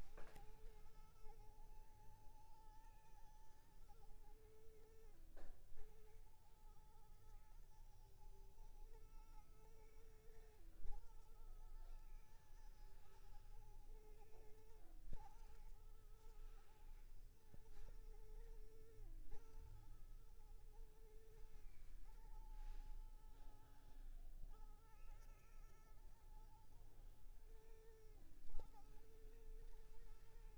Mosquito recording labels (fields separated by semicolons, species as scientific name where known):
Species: Anopheles arabiensis; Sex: female; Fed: unfed; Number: one; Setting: cup